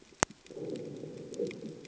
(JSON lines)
{"label": "anthrophony, bomb", "recorder": "HydroMoth"}